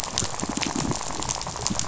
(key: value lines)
label: biophony, rattle
recorder: SoundTrap 500